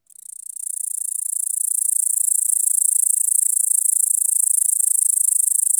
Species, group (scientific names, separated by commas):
Tettigonia cantans, Orthoptera